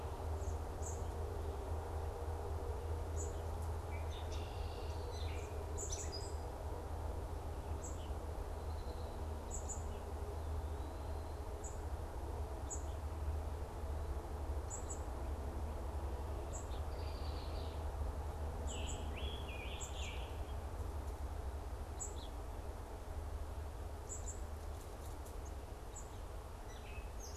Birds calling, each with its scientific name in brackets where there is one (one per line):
Scarlet Tanager (Piranga olivacea)
Gray Catbird (Dumetella carolinensis)
Red-winged Blackbird (Agelaius phoeniceus)
unidentified bird